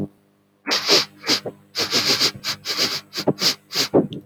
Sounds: Sniff